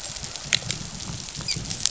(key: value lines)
label: biophony, rattle response
recorder: SoundTrap 500